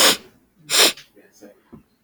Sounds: Sniff